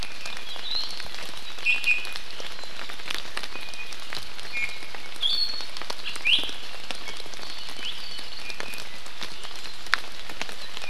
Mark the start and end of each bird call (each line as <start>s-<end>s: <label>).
0.0s-0.9s: Iiwi (Drepanis coccinea)
1.6s-2.2s: Iiwi (Drepanis coccinea)
3.5s-3.9s: Iiwi (Drepanis coccinea)
4.5s-5.7s: Iiwi (Drepanis coccinea)
6.0s-6.5s: Iiwi (Drepanis coccinea)
8.4s-9.1s: Iiwi (Drepanis coccinea)